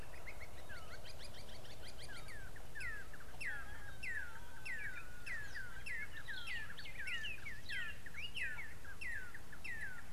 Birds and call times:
Red-and-yellow Barbet (Trachyphonus erythrocephalus): 0:01.5, 0:05.3
Spotted Morning-Thrush (Cichladusa guttata): 0:07.3

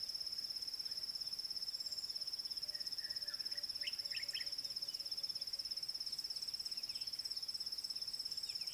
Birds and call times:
Common Bulbul (Pycnonotus barbatus): 0:04.2

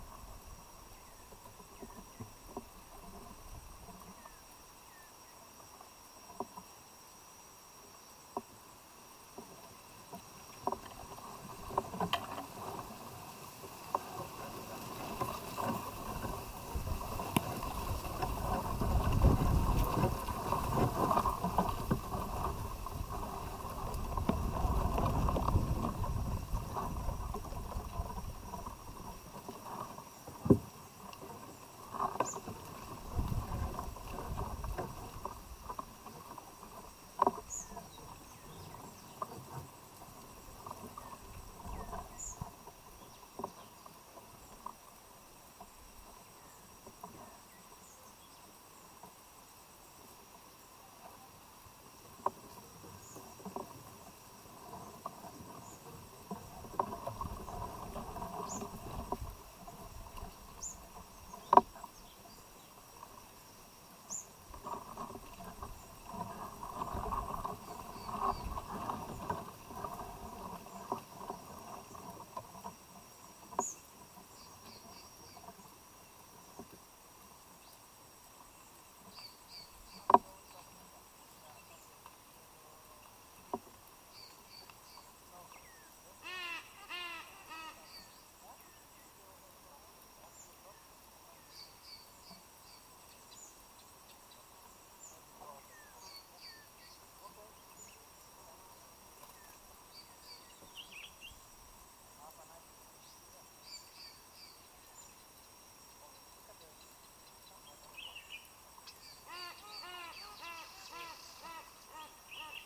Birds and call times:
White-eyed Slaty-Flycatcher (Melaenornis fischeri): 0:42.0
Black-collared Apalis (Oreolais pulcher): 1:19.3, 1:31.7
African Emerald Cuckoo (Chrysococcyx cupreus): 1:25.5, 1:36.3
Silvery-cheeked Hornbill (Bycanistes brevis): 1:26.7, 1:50.8
Common Bulbul (Pycnonotus barbatus): 1:40.7, 1:48.0

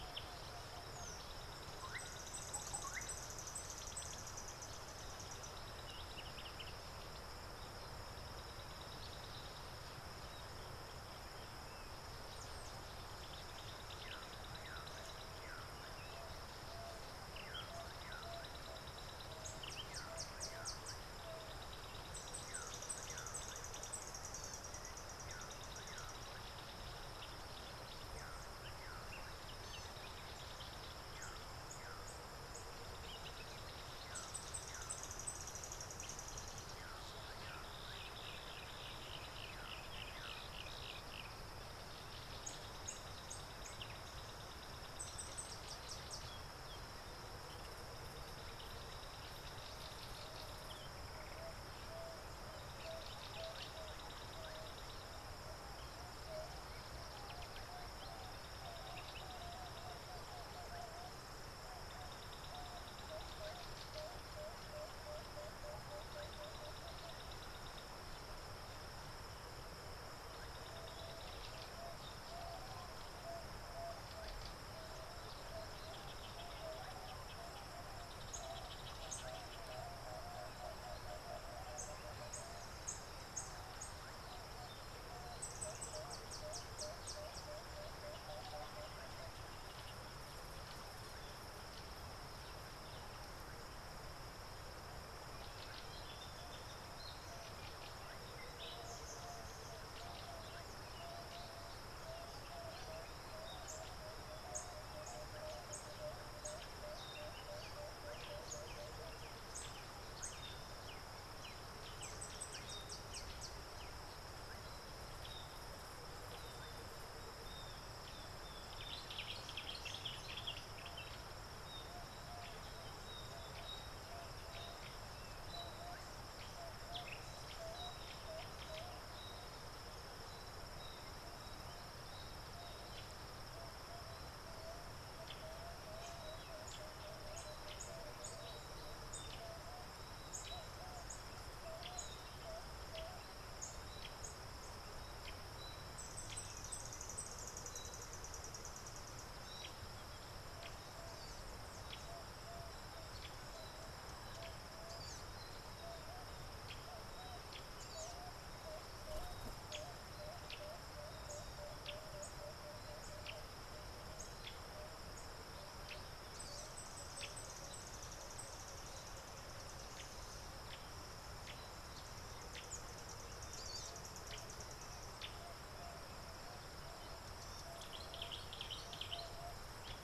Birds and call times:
Collared Sunbird (Hedydipna collaris): 0:03.2, 2:38.0, 2:53.7
Yellow Bishop (Euplectes capensis): 0:23.3, 0:34.5, 0:42.8, 1:22.9, 1:44.5, 2:19.1, 2:42.2
Yellow-breasted Apalis (Apalis flavida): 0:39.7
Emerald-spotted Wood-Dove (Turtur chalcospilos): 0:59.3, 1:13.3, 1:27.5, 1:46.1, 2:22.5, 2:38.7
African Bare-eyed Thrush (Turdus tephronotus): 1:02.5
Common Bulbul (Pycnonotus barbatus): 2:58.7

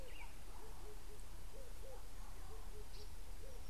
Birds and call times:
Red-eyed Dove (Streptopelia semitorquata): 0:01.9

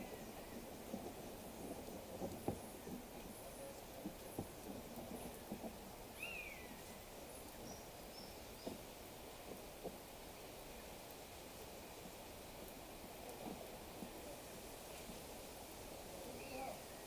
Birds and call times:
Common Buzzard (Buteo buteo): 0:06.3

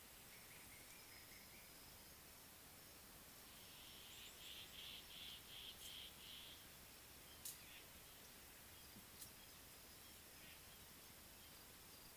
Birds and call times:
Northern Puffback (Dryoscopus gambensis): 0:05.3

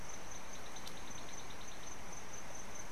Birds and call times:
African Bare-eyed Thrush (Turdus tephronotus): 0:01.1

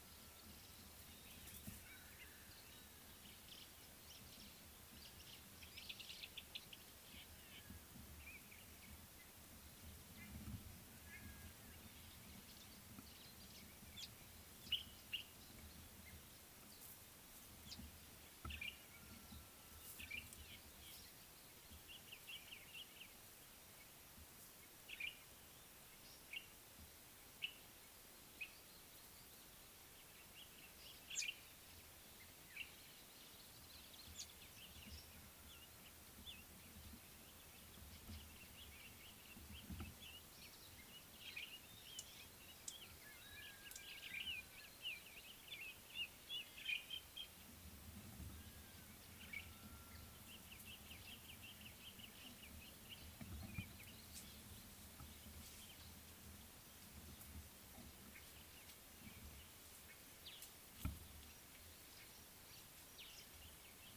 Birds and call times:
African Thrush (Turdus pelios): 0:06.3
Golden-breasted Starling (Lamprotornis regius): 0:07.2, 0:20.5
Common Bulbul (Pycnonotus barbatus): 0:14.8, 0:22.5, 0:27.5, 0:49.4

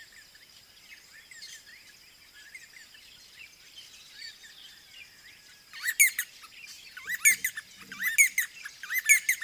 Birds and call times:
D'Arnaud's Barbet (Trachyphonus darnaudii): 0:05.9, 0:08.2

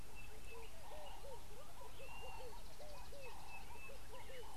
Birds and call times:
Red-eyed Dove (Streptopelia semitorquata): 0:01.3
Ring-necked Dove (Streptopelia capicola): 0:03.4
Sulphur-breasted Bushshrike (Telophorus sulfureopectus): 0:03.5

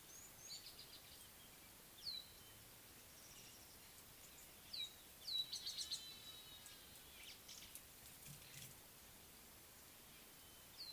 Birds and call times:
Rattling Cisticola (Cisticola chiniana): 0:05.3

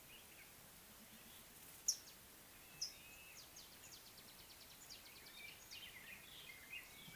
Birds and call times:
Mariqua Sunbird (Cinnyris mariquensis): 0:02.8

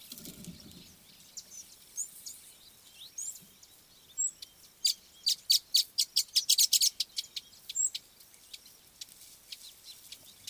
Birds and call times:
Red-cheeked Cordonbleu (Uraeginthus bengalus): 0:03.3
Chestnut Weaver (Ploceus rubiginosus): 0:06.0

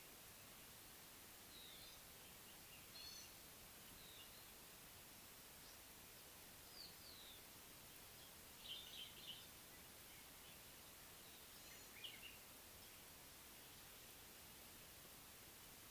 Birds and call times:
Pale White-eye (Zosterops flavilateralis): 0:01.8, 0:07.2
Gray-backed Camaroptera (Camaroptera brevicaudata): 0:03.0
Common Bulbul (Pycnonotus barbatus): 0:09.0

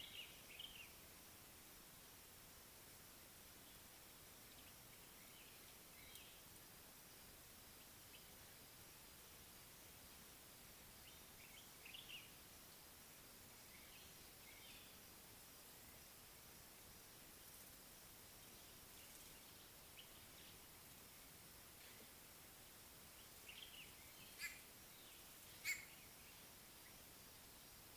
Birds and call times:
Common Bulbul (Pycnonotus barbatus): 0:00.1, 0:11.8, 0:23.6
White-bellied Go-away-bird (Corythaixoides leucogaster): 0:24.3, 0:25.6

